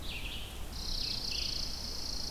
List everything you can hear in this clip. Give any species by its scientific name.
Vireo olivaceus, Spizella passerina